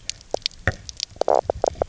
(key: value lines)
label: biophony, knock croak
recorder: SoundTrap 300